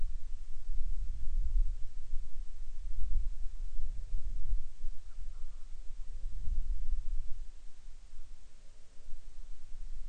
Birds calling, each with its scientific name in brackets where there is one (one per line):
Hawaiian Petrel (Pterodroma sandwichensis)